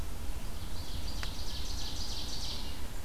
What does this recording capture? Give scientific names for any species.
Seiurus aurocapilla